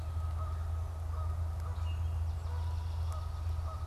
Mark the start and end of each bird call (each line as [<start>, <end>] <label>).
[0.00, 3.87] Canada Goose (Branta canadensis)
[1.55, 2.15] Common Grackle (Quiscalus quiscula)
[2.25, 3.87] Swamp Sparrow (Melospiza georgiana)